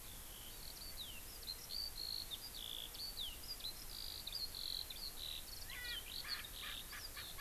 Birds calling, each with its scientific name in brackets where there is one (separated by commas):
Erckel's Francolin (Pternistis erckelii), Eurasian Skylark (Alauda arvensis)